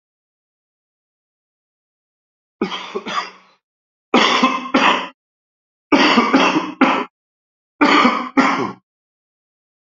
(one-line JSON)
{"expert_labels": [{"quality": "good", "cough_type": "dry", "dyspnea": false, "wheezing": false, "stridor": false, "choking": false, "congestion": false, "nothing": true, "diagnosis": "COVID-19", "severity": "severe"}], "age": 56, "gender": "male", "respiratory_condition": false, "fever_muscle_pain": false, "status": "symptomatic"}